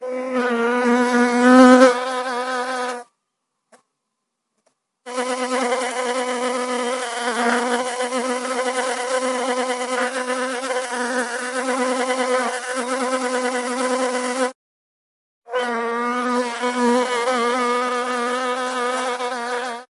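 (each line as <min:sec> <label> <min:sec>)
0:00.0 An insect hums while flying around. 0:03.1
0:05.0 An insect humming rapidly. 0:14.6
0:15.4 An insect is humming and flying. 0:19.9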